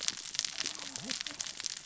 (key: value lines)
label: biophony, cascading saw
recorder: SoundTrap 600 or HydroMoth